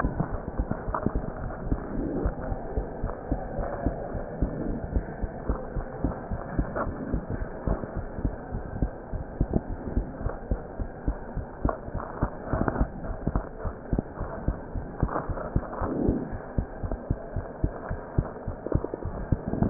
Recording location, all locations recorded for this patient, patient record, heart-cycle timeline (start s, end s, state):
pulmonary valve (PV)
aortic valve (AV)+pulmonary valve (PV)+tricuspid valve (TV)+mitral valve (MV)
#Age: Child
#Sex: Female
#Height: 87.0 cm
#Weight: 10.2 kg
#Pregnancy status: False
#Murmur: Absent
#Murmur locations: nan
#Most audible location: nan
#Systolic murmur timing: nan
#Systolic murmur shape: nan
#Systolic murmur grading: nan
#Systolic murmur pitch: nan
#Systolic murmur quality: nan
#Diastolic murmur timing: nan
#Diastolic murmur shape: nan
#Diastolic murmur grading: nan
#Diastolic murmur pitch: nan
#Diastolic murmur quality: nan
#Outcome: Normal
#Campaign: 2015 screening campaign
0.00	2.55	unannotated
2.55	2.75	diastole
2.75	2.82	S1
2.82	3.02	systole
3.02	3.07	S2
3.07	3.30	diastole
3.30	3.36	S1
3.36	3.56	systole
3.56	3.63	S2
3.63	3.85	diastole
3.85	3.91	S1
3.91	4.14	systole
4.14	4.20	S2
4.20	4.41	diastole
4.41	4.47	S1
4.47	4.69	systole
4.69	4.74	S2
4.74	4.94	diastole
4.94	5.00	S1
5.00	5.21	systole
5.21	5.27	S2
5.27	5.47	diastole
5.47	5.54	S1
5.54	5.75	systole
5.75	5.82	S2
5.82	6.02	diastole
6.02	6.09	S1
6.09	6.31	systole
6.31	6.37	S2
6.37	6.57	diastole
6.57	6.64	S1
6.64	6.85	systole
6.85	6.92	S2
6.92	7.12	diastole
7.12	7.20	S1
7.20	7.39	systole
7.39	7.46	S2
7.46	7.67	diastole
7.67	7.75	S1
7.75	7.96	systole
7.96	8.03	S2
8.03	8.23	diastole
8.23	8.30	S1
8.30	8.52	systole
8.52	8.57	S2
8.57	8.80	diastole
8.80	8.87	S1
8.87	9.12	systole
9.12	9.17	S2
9.17	9.39	diastole
9.39	9.45	S1
9.45	19.70	unannotated